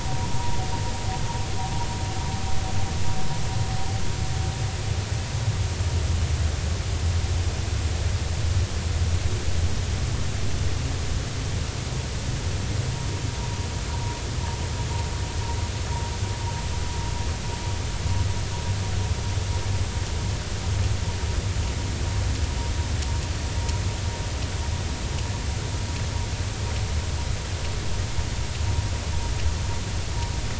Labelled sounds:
13.9	14.2	vessel noise, 0.90 to 0.99 kHz

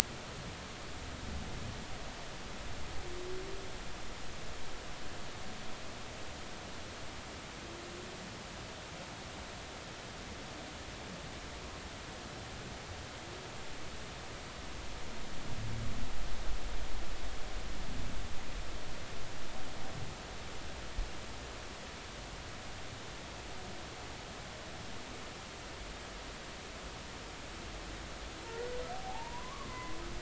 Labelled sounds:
28.9	30.0	humpback whale, 0.80 to 2.1 kHz

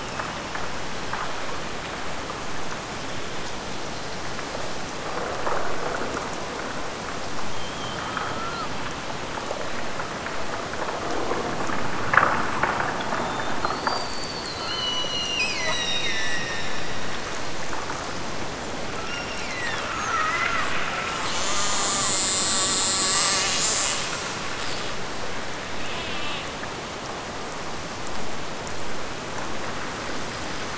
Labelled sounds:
14.5	16.9	killer whale, Bigg's (transient), Gulf of Alaska transient, 1.7 to 8.0 kHz
19.0	19.9	killer whale, Bigg's (transient), Gulf of Alaska transient, 1.6 to 8.0 kHz

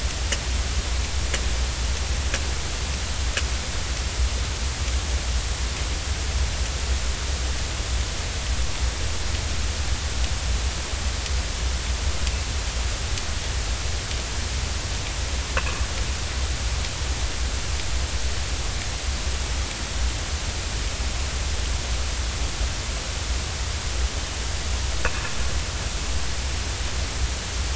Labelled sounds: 15.6	15.8	sperm whale, 2.4 to 2.8 kHz

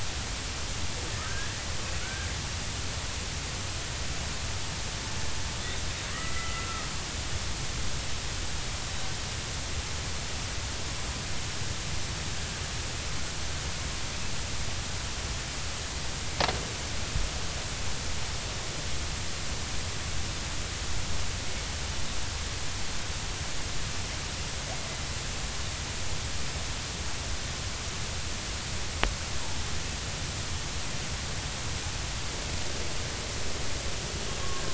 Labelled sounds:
1.2	2.3	killer whale, Bigg's (transient), 1.2 to 1.9 kHz
6.1	6.9	killer whale, Bigg's (transient), 1.1 to 2.0 kHz

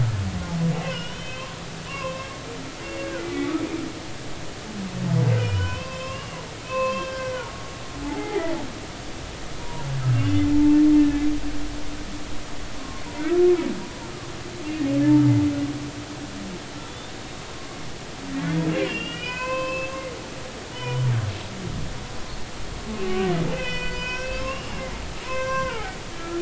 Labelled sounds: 0.8	1.5	humpback whale, 1.4 to 3.6 kHz
1.9	2.3	humpback whale, 0.96 to 2.8 kHz
2.8	3.5	humpback whale, 1.4 to 2.8 kHz
5.4	6.4	humpback whale, 0.96 to 5.6 kHz
6.6	7.5	humpback whale, 0.99 to 3.2 kHz
8.0	8.6	humpback whale, 0.80 to 2.1 kHz
9.6	10.8	humpback whale, 0.83 to 3.0 kHz
13.2	13.5	humpback whale, 1.3 to 1.4 kHz
17.1	17.4	humpback whale, 3.7 to 3.8 kHz
18.8	21.1	humpback whale, 0.93 to 5.3 kHz
23.0	24.8	humpback whale, 0.93 to 5.8 kHz
25.2	26.3	humpback whale, 0.80 to 5.9 kHz

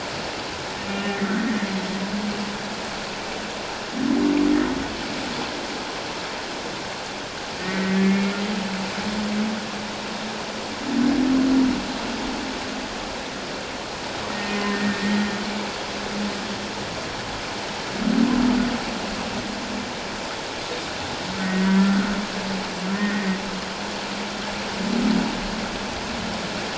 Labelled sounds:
1.0	1.3	humpback whale, 1.8 to 2.1 kHz
7.6	8.4	humpback whale, 1.7 to 2.2 kHz
14.3	15.0	humpback whale, 1.8 to 1.9 kHz
21.4	22.1	humpback whale, 1.2 to 2.0 kHz
22.9	23.4	humpback whale, 1.8 to 2.1 kHz

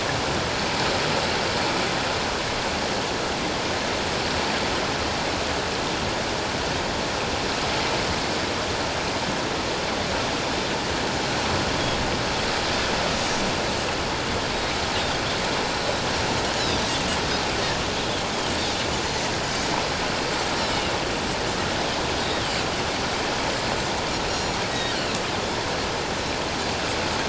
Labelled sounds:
20.7	20.9	Pacific white-sided dolphin, 2.7 to 3.0 kHz
24.3	24.9	Pacific white-sided dolphin, 1.8 to 7.0 kHz

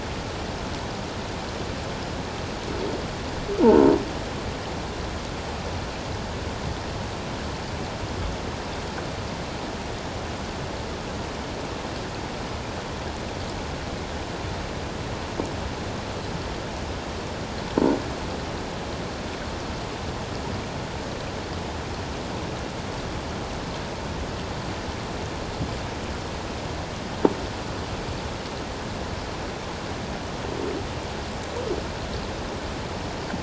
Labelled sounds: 3.6	4.0	croaking sound likely from a nearby submerged object, 0.81 to 1.1 kHz

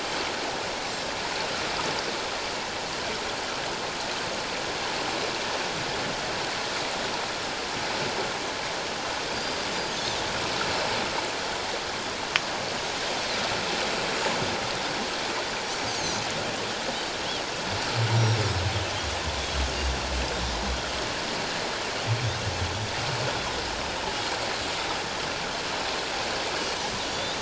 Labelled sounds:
15.6	16.2	Pacific white-sided dolphin, 5.5 to 6.8 kHz
18.2	18.4	Pacific white-sided dolphin, 5.5 to 5.8 kHz
27.1	27.3	Pacific white-sided dolphin, 3.4 to 3.8 kHz

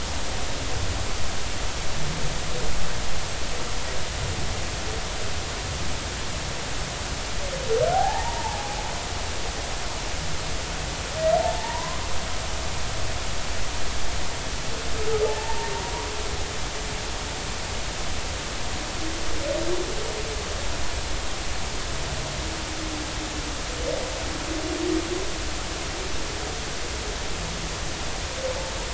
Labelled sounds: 7.9	8.8	humpback whale, 0.80 to 1.9 kHz
11.4	12.0	humpback whale, 0.80 to 1.2 kHz
15.2	15.7	humpback whale, 0.83 to 0.96 kHz

